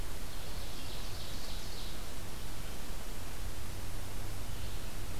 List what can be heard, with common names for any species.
Ovenbird